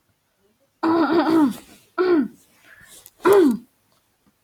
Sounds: Throat clearing